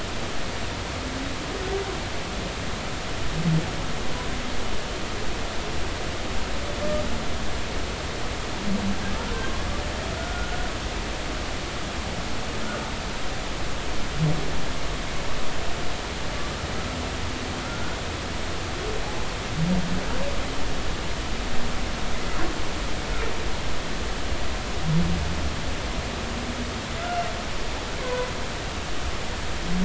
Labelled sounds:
9.3	9.6	humpback whale, 0.99 to 1.2 kHz
10.1	10.6	humpback whale, 1.4 to 1.5 kHz
17.6	18.0	humpback whale, 1.3 to 1.5 kHz
28.0	28.3	humpback whale, 0.93 to 1.1 kHz

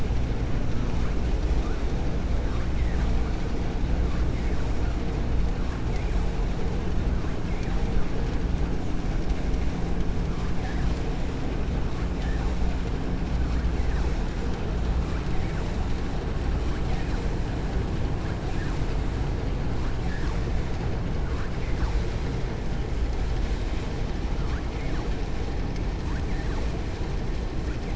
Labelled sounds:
20.0	20.4	vessel noise, 0.62 to 2.4 kHz

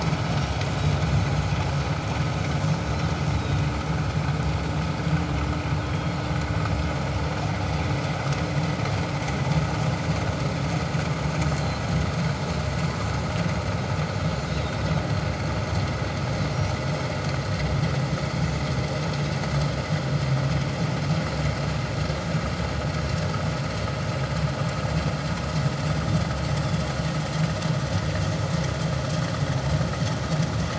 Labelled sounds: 3.3	3.6	Pacific white-sided dolphin, 3.6 to 3.9 kHz
5.8	6.2	Pacific white-sided dolphin, 3.2 to 3.3 kHz
14.5	14.8	Pacific white-sided dolphin, 3.6 to 4.0 kHz

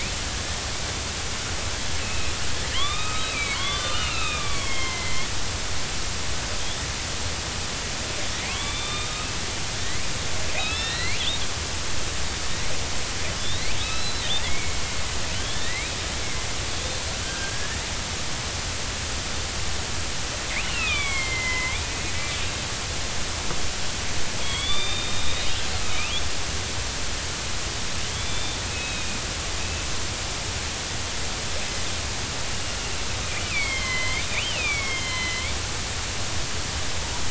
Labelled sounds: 2.0	2.3	killer whale, northern resident, 2.4 to 2.8 kHz
2.7	5.3	killer whale, northern resident, 0.93 to 5.5 kHz
6.6	6.8	killer whale, northern resident, 3.2 to 3.7 kHz
8.3	9.3	killer whale, northern resident, 1.0 to 3.8 kHz
9.8	10.1	killer whale, northern resident, 1.8 to 4.2 kHz
10.6	11.2	killer whale, northern resident, 1.7 to 4.3 kHz
13.4	15.9	killer whale, northern resident, 1.7 to 4.4 kHz
16.2	16.5	killer whale, northern resident, 2.0 to 2.2 kHz
17.2	17.8	killer whale, northern resident, 1.3 to 1.9 kHz
20.6	21.8	killer whale, northern resident, 0.96 to 4.0 kHz
24.4	26.2	killer whale, northern resident, 2.0 to 4.9 kHz
28.1	29.2	killer whale, northern resident, 2.2 to 3.9 kHz
33.2	35.5	killer whale, northern resident, 2.0 to 4.2 kHz

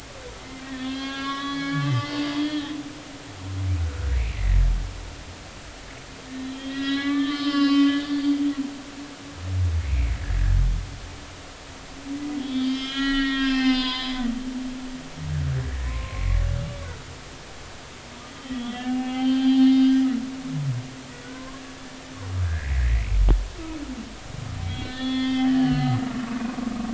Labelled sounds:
1.0	2.8	humpback whale, 1.1 to 5.9 kHz
3.8	4.1	humpback whale, 1.3 to 1.6 kHz
6.3	8.3	humpback whale, 1.1 to 5.4 kHz
9.0	10.2	humpback whale, 2.0 to 4.7 kHz
12.3	14.2	humpback whale, 0.96 to 5.4 kHz
15.8	16.3	humpback whale, 0.96 to 1.1 kHz
18.3	20.3	humpback whale, 0.80 to 4.8 kHz
21.3	21.6	humpback whale, 0.99 to 1.2 kHz
22.4	23.0	humpback whale, 1.5 to 2.1 kHz
24.6	26.5	humpback whale, 1.1 to 4.8 kHz

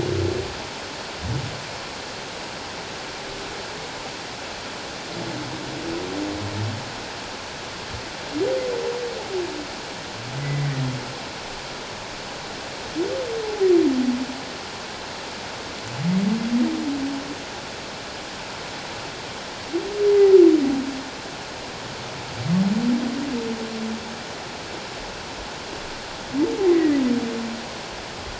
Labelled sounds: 10.4	10.8	humpback whale, 1.8 to 2.1 kHz
13.4	13.7	humpback whale, 0.78 to 0.91 kHz
20.1	20.4	humpback whale, 1.9 to 2.1 kHz
26.7	27.0	humpback whale, 1.7 to 2.1 kHz

